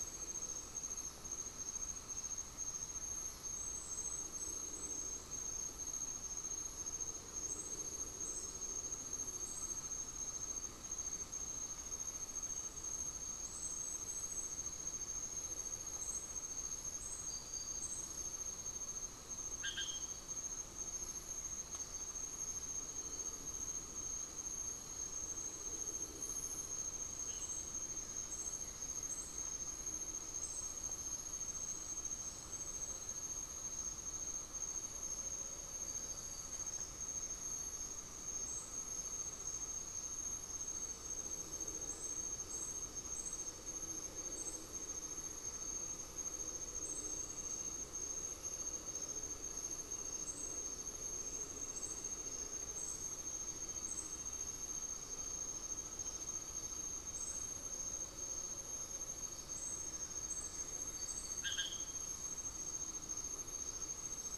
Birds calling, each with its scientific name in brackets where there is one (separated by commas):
Buff-throated Woodcreeper (Xiphorhynchus guttatus)